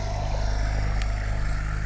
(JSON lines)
{"label": "anthrophony, boat engine", "recorder": "SoundTrap 300"}